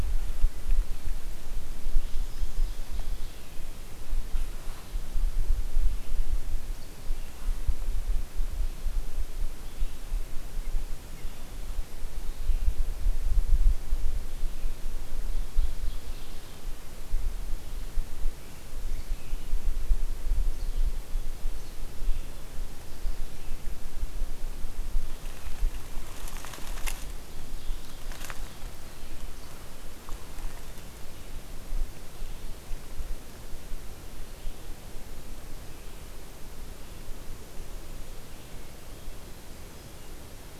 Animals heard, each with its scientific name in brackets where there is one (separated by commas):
Hermit Thrush (Catharus guttatus), Red-eyed Vireo (Vireo olivaceus), Ovenbird (Seiurus aurocapilla)